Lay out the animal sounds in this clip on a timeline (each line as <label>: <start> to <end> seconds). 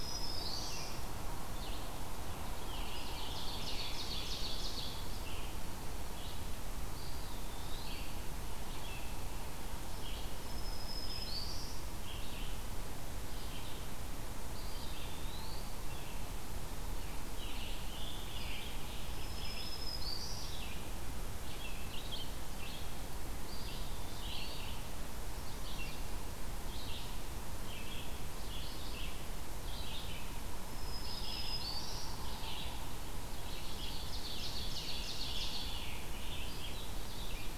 Eastern Wood-Pewee (Contopus virens): 0.0 to 0.7 seconds
Black-throated Green Warbler (Setophaga virens): 0.0 to 1.1 seconds
Red-eyed Vireo (Vireo olivaceus): 0.0 to 37.6 seconds
Scarlet Tanager (Piranga olivacea): 2.1 to 4.3 seconds
Ovenbird (Seiurus aurocapilla): 2.4 to 5.1 seconds
Eastern Wood-Pewee (Contopus virens): 6.6 to 8.1 seconds
Black-throated Green Warbler (Setophaga virens): 10.2 to 11.9 seconds
Eastern Wood-Pewee (Contopus virens): 14.3 to 15.7 seconds
Scarlet Tanager (Piranga olivacea): 16.9 to 19.4 seconds
Black-throated Green Warbler (Setophaga virens): 19.1 to 20.5 seconds
Eastern Wood-Pewee (Contopus virens): 23.3 to 24.7 seconds
Black-throated Green Warbler (Setophaga virens): 30.5 to 32.2 seconds
Eastern Wood-Pewee (Contopus virens): 30.8 to 32.0 seconds
Ovenbird (Seiurus aurocapilla): 33.2 to 35.9 seconds
Scarlet Tanager (Piranga olivacea): 33.6 to 36.8 seconds